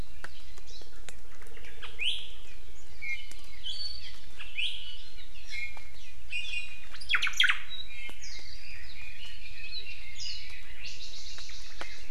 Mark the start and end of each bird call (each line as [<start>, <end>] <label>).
[0.70, 0.90] Iiwi (Drepanis coccinea)
[1.30, 1.90] Omao (Myadestes obscurus)
[2.00, 2.30] Iiwi (Drepanis coccinea)
[2.90, 5.10] Iiwi (Drepanis coccinea)
[5.40, 6.00] Iiwi (Drepanis coccinea)
[6.30, 6.90] Iiwi (Drepanis coccinea)
[6.90, 7.60] Omao (Myadestes obscurus)
[7.80, 11.40] Red-billed Leiothrix (Leiothrix lutea)
[7.90, 8.60] Iiwi (Drepanis coccinea)
[10.20, 10.50] Iiwi (Drepanis coccinea)
[10.80, 12.10] Japanese Bush Warbler (Horornis diphone)